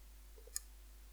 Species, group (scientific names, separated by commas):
Phaneroptera falcata, Orthoptera